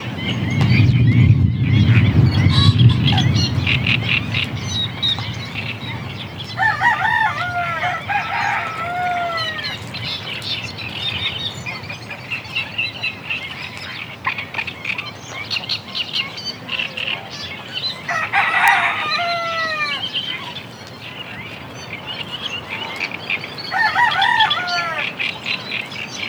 Is this on a farm?
yes